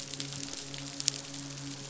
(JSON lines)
{"label": "biophony, midshipman", "recorder": "SoundTrap 500"}